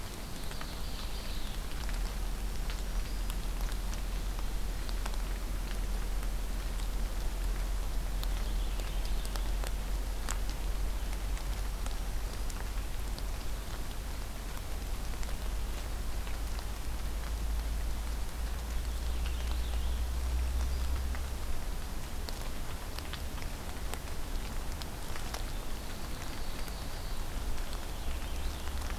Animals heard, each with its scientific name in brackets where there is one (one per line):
Ovenbird (Seiurus aurocapilla)
Black-throated Green Warbler (Setophaga virens)
Purple Finch (Haemorhous purpureus)